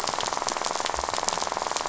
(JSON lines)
{"label": "biophony, rattle", "recorder": "SoundTrap 500"}